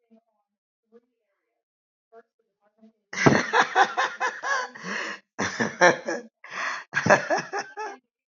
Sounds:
Laughter